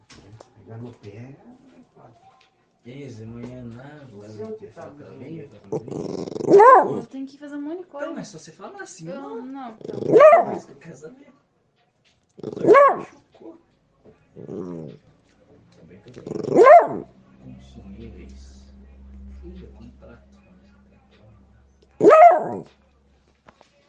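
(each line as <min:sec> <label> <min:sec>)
0:00.0 People are conversing indoors in a muffled manner. 0:05.9
0:00.0 People are having a loud, continuous conversation indoors. 0:05.9
0:06.0 A dog growls, fading away indoors. 0:07.3
0:07.3 People are having a loud, continuous conversation indoors. 0:11.2
0:09.8 A dog growls, fading away indoors. 0:10.8
0:12.4 A dog growls, fading away indoors. 0:13.1
0:14.3 A dog growls muffled indoors. 0:15.0
0:16.2 A dog growls, fading away indoors. 0:17.1
0:17.4 People conversing with an echoing effect. 0:22.0
0:22.0 A dog growls loudly indoors. 0:22.6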